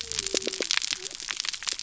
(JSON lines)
{"label": "biophony", "recorder": "SoundTrap 300"}